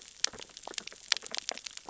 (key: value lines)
label: biophony, sea urchins (Echinidae)
recorder: SoundTrap 600 or HydroMoth